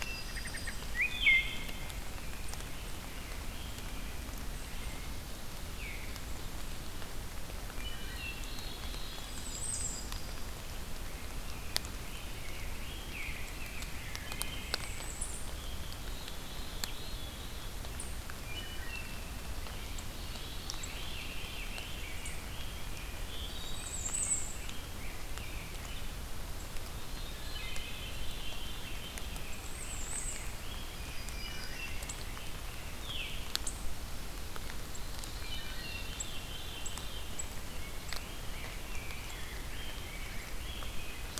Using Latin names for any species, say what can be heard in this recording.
Hylocichla mustelina, Setophaga coronata, Pheucticus ludovicianus, Catharus fuscescens, Setophaga castanea, unknown mammal